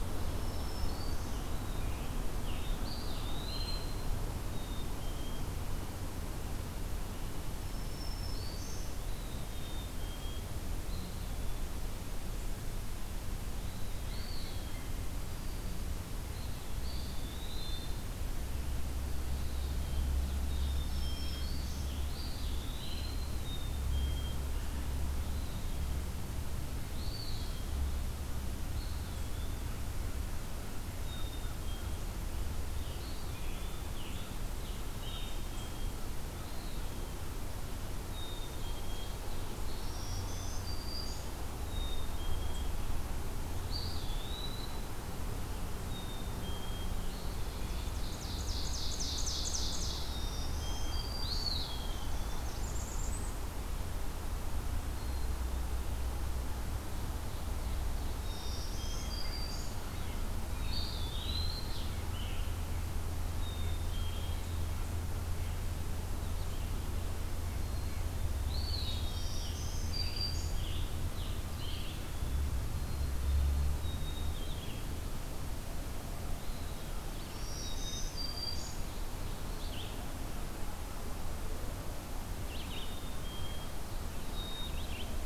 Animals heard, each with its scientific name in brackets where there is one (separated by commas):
Blackburnian Warbler (Setophaga fusca), Black-capped Chickadee (Poecile atricapillus), Black-throated Green Warbler (Setophaga virens), Ovenbird (Seiurus aurocapilla), Eastern Wood-Pewee (Contopus virens), Scarlet Tanager (Piranga olivacea), Red-eyed Vireo (Vireo olivaceus)